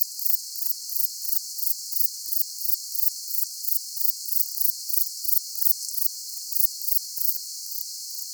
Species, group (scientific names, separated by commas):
Platycleis albopunctata, Orthoptera